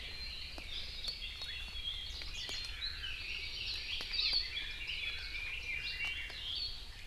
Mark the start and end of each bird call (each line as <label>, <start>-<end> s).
Hawaii Amakihi (Chlorodrepanis virens), 2.9-4.1 s
Red-billed Leiothrix (Leiothrix lutea), 3.0-6.4 s